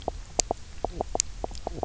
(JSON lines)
{"label": "biophony, knock croak", "recorder": "SoundTrap 300"}